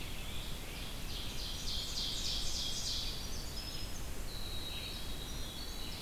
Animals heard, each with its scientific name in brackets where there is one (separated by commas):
Red-eyed Vireo (Vireo olivaceus), Winter Wren (Troglodytes hiemalis), Tufted Titmouse (Baeolophus bicolor), Ovenbird (Seiurus aurocapilla)